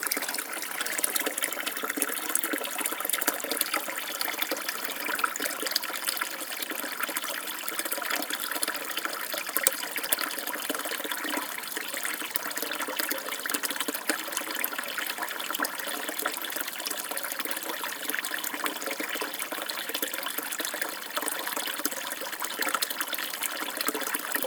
What is making the sound?
water